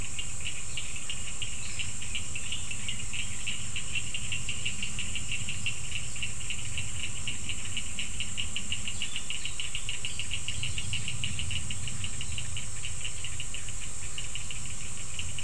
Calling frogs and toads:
Cochran's lime tree frog (Sphaenorhynchus surdus)
7:15pm

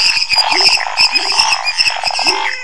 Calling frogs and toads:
waxy monkey tree frog (Phyllomedusa sauvagii), lesser tree frog (Dendropsophus minutus), pepper frog (Leptodactylus labyrinthicus), Scinax fuscovarius, Pithecopus azureus, menwig frog (Physalaemus albonotatus)
10:15pm

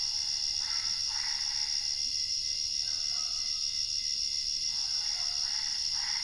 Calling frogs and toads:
Boana albopunctata
11:30pm

